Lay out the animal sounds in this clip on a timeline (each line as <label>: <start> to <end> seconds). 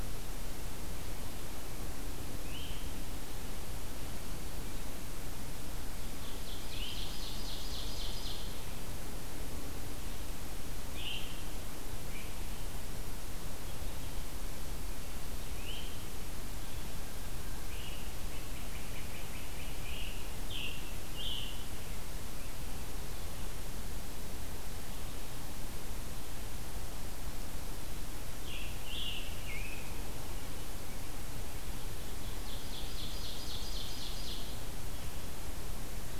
Scarlet Tanager (Piranga olivacea): 2.3 to 3.0 seconds
Ovenbird (Seiurus aurocapilla): 5.7 to 8.8 seconds
Scarlet Tanager (Piranga olivacea): 10.8 to 11.3 seconds
Scarlet Tanager (Piranga olivacea): 15.4 to 16.0 seconds
Great Crested Flycatcher (Myiarchus crinitus): 17.6 to 20.3 seconds
Scarlet Tanager (Piranga olivacea): 20.1 to 21.8 seconds
Scarlet Tanager (Piranga olivacea): 28.4 to 29.9 seconds
Ovenbird (Seiurus aurocapilla): 32.0 to 34.7 seconds